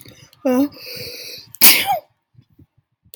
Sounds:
Sneeze